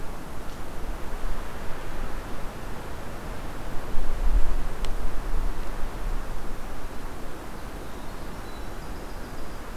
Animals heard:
Winter Wren (Troglodytes hiemalis)

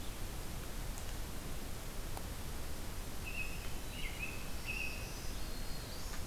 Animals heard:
Black-throated Green Warbler (Setophaga virens)
American Robin (Turdus migratorius)

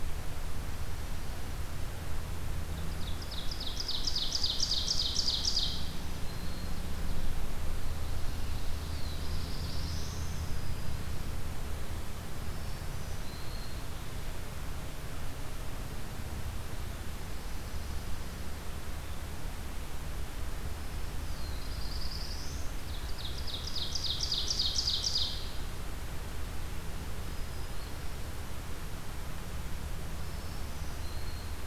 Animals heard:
Ovenbird (Seiurus aurocapilla)
Pine Warbler (Setophaga pinus)
Black-throated Blue Warbler (Setophaga caerulescens)
Black-throated Green Warbler (Setophaga virens)

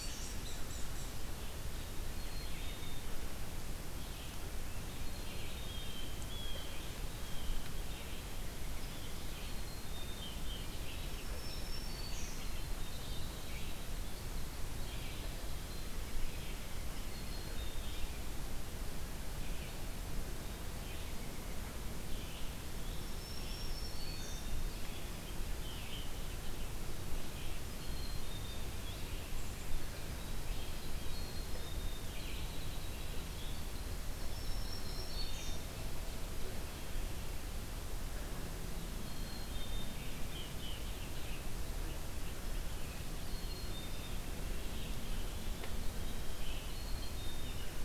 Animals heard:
unknown mammal
Black-capped Chickadee (Poecile atricapillus)
Red-eyed Vireo (Vireo olivaceus)
Blue Jay (Cyanocitta cristata)
Winter Wren (Troglodytes hiemalis)
Black-throated Green Warbler (Setophaga virens)

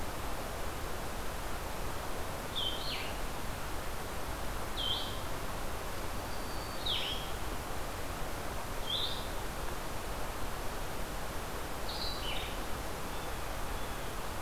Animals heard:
Blue Jay (Cyanocitta cristata)
Blue-headed Vireo (Vireo solitarius)
Black-throated Green Warbler (Setophaga virens)

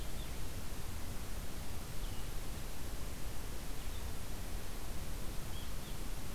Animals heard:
Red-eyed Vireo (Vireo olivaceus)

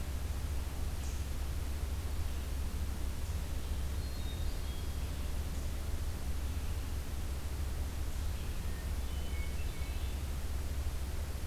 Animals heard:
Hermit Thrush (Catharus guttatus)

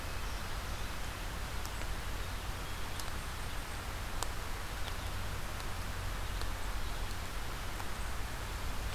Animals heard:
Eastern Chipmunk (Tamias striatus)

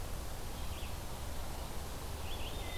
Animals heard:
Red-eyed Vireo (Vireo olivaceus)

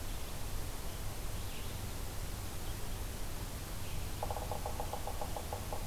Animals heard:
Red-eyed Vireo (Vireo olivaceus)
Yellow-bellied Sapsucker (Sphyrapicus varius)

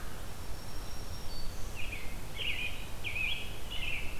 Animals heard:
American Robin (Turdus migratorius)
Black-throated Green Warbler (Setophaga virens)

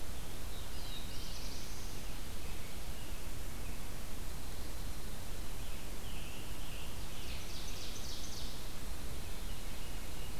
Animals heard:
Ovenbird (Seiurus aurocapilla)
Black-throated Blue Warbler (Setophaga caerulescens)
American Robin (Turdus migratorius)
Scarlet Tanager (Piranga olivacea)
Veery (Catharus fuscescens)

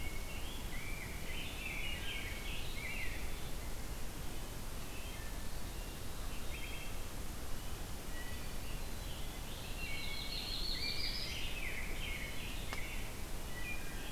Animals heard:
Rose-breasted Grosbeak (Pheucticus ludovicianus)
Yellow-rumped Warbler (Setophaga coronata)
Wood Thrush (Hylocichla mustelina)

